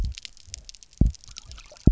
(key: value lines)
label: biophony, double pulse
recorder: SoundTrap 300